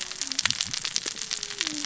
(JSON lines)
{"label": "biophony, cascading saw", "recorder": "SoundTrap 600 or HydroMoth"}